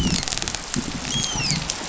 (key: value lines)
label: biophony, dolphin
recorder: SoundTrap 500